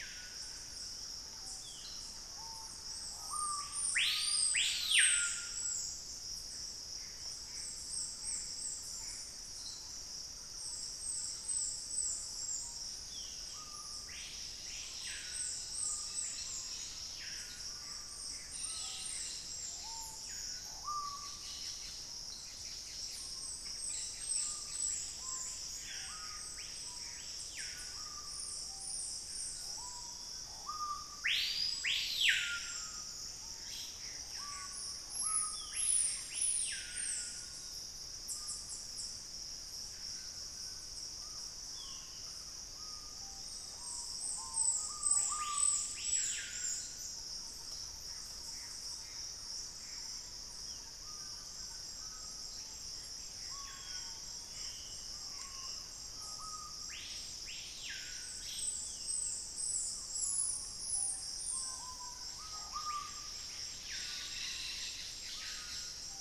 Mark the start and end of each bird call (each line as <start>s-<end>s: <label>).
0.0s-5.9s: Screaming Piha (Lipaugus vociferans)
6.6s-9.6s: Gray Antbird (Cercomacra cinerascens)
6.9s-11.8s: Thrush-like Wren (Campylorhynchus turdinus)
12.4s-66.2s: Screaming Piha (Lipaugus vociferans)
25.4s-28.2s: Gray Antbird (Cercomacra cinerascens)
33.3s-34.1s: Ash-throated Gnateater (Conopophaga peruviana)
46.6s-61.5s: Thrush-like Wren (Campylorhynchus turdinus)
47.9s-50.1s: Gray Antbird (Cercomacra cinerascens)
50.7s-52.0s: Collared Trogon (Trogon collaris)
53.6s-55.2s: Black-spotted Bare-eye (Phlegopsis nigromaculata)
61.0s-62.6s: Collared Trogon (Trogon collaris)